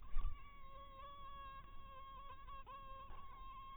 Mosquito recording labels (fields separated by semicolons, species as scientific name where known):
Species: mosquito; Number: one; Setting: cup